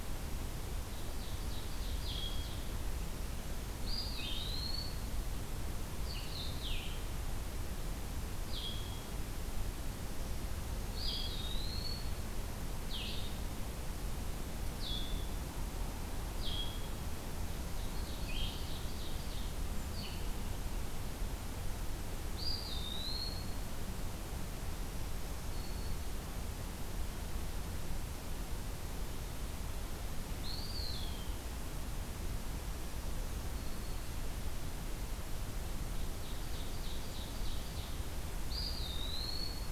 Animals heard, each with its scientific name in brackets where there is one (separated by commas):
Black-throated Green Warbler (Setophaga virens), Blue-headed Vireo (Vireo solitarius), Ovenbird (Seiurus aurocapilla), Eastern Wood-Pewee (Contopus virens)